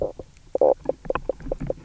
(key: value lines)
label: biophony, knock croak
recorder: SoundTrap 300